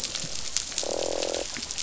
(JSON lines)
{"label": "biophony, croak", "recorder": "SoundTrap 500"}